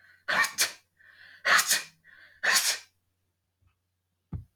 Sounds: Sneeze